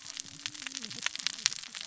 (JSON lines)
{"label": "biophony, cascading saw", "recorder": "SoundTrap 600 or HydroMoth"}